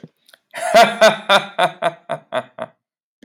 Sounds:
Laughter